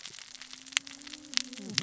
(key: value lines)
label: biophony, cascading saw
recorder: SoundTrap 600 or HydroMoth